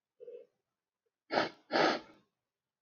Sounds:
Sniff